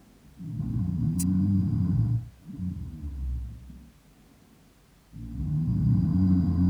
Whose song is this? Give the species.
Leptophyes albovittata